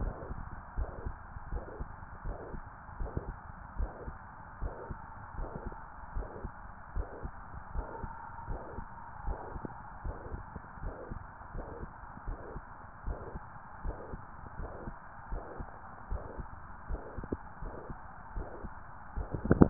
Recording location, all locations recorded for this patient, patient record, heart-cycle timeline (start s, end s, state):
tricuspid valve (TV)
aortic valve (AV)+pulmonary valve (PV)+tricuspid valve (TV)+mitral valve (MV)
#Age: Adolescent
#Sex: Male
#Height: 174.0 cm
#Weight: 108.6 kg
#Pregnancy status: False
#Murmur: Present
#Murmur locations: mitral valve (MV)+pulmonary valve (PV)+tricuspid valve (TV)
#Most audible location: tricuspid valve (TV)
#Systolic murmur timing: Holosystolic
#Systolic murmur shape: Plateau
#Systolic murmur grading: I/VI
#Systolic murmur pitch: Low
#Systolic murmur quality: Blowing
#Diastolic murmur timing: nan
#Diastolic murmur shape: nan
#Diastolic murmur grading: nan
#Diastolic murmur pitch: nan
#Diastolic murmur quality: nan
#Outcome: Abnormal
#Campaign: 2015 screening campaign
0.00	0.14	S1
0.14	0.28	systole
0.28	0.40	S2
0.40	0.74	diastole
0.74	0.90	S1
0.90	1.02	systole
1.02	1.16	S2
1.16	1.50	diastole
1.50	1.66	S1
1.66	1.78	systole
1.78	1.88	S2
1.88	2.24	diastole
2.24	2.38	S1
2.38	2.52	systole
2.52	2.64	S2
2.64	2.98	diastole
2.98	3.12	S1
3.12	3.26	systole
3.26	3.36	S2
3.36	3.74	diastole
3.74	3.90	S1
3.90	4.06	systole
4.06	4.18	S2
4.18	4.60	diastole
4.60	4.76	S1
4.76	4.88	systole
4.88	5.00	S2
5.00	5.38	diastole
5.38	5.52	S1
5.52	5.64	systole
5.64	5.76	S2
5.76	6.14	diastole
6.14	6.28	S1
6.28	6.42	systole
6.42	6.52	S2
6.52	6.94	diastole
6.94	7.08	S1
7.08	7.22	systole
7.22	7.34	S2
7.34	7.72	diastole
7.72	7.88	S1
7.88	8.00	systole
8.00	8.12	S2
8.12	8.48	diastole
8.48	8.62	S1
8.62	8.74	systole
8.74	8.86	S2
8.86	9.24	diastole
9.24	9.38	S1
9.38	9.54	systole
9.54	9.62	S2
9.62	10.04	diastole
10.04	10.16	S1
10.16	10.34	systole
10.34	10.46	S2
10.46	10.82	diastole
10.82	10.94	S1
10.94	11.10	systole
11.10	11.20	S2
11.20	11.54	diastole
11.54	11.66	S1
11.66	11.80	systole
11.80	11.90	S2
11.90	12.26	diastole
12.26	12.40	S1
12.40	12.54	systole
12.54	12.62	S2
12.62	13.04	diastole
13.04	13.18	S1
13.18	13.32	systole
13.32	13.42	S2
13.42	13.84	diastole
13.84	13.98	S1
13.98	14.12	systole
14.12	14.20	S2
14.20	14.58	diastole
14.58	14.72	S1
14.72	14.86	systole
14.86	14.96	S2
14.96	15.30	diastole
15.30	15.44	S1
15.44	15.58	systole
15.58	15.68	S2
15.68	16.08	diastole
16.08	16.24	S1
16.24	16.38	systole
16.38	16.48	S2
16.48	16.88	diastole
16.88	17.04	S1
17.04	17.16	systole
17.16	17.28	S2
17.28	17.62	diastole
17.62	17.74	S1
17.74	17.88	systole
17.88	17.98	S2
17.98	18.34	diastole